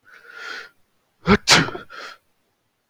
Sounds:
Sneeze